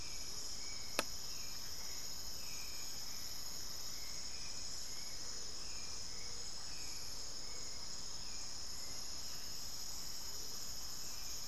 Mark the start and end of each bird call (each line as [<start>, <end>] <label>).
[0.00, 0.70] Amazonian Motmot (Momotus momota)
[0.00, 11.47] Hauxwell's Thrush (Turdus hauxwelli)
[5.10, 11.47] Speckled Chachalaca (Ortalis guttata)
[8.50, 10.00] unidentified bird
[10.20, 10.90] Amazonian Motmot (Momotus momota)